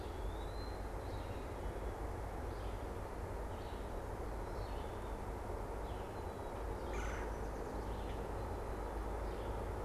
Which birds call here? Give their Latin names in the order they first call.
Contopus virens, Vireo olivaceus, Melanerpes carolinus, Quiscalus quiscula